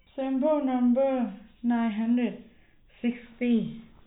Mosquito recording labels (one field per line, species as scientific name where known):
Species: no mosquito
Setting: cup